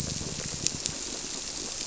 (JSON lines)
{"label": "biophony", "recorder": "SoundTrap 300"}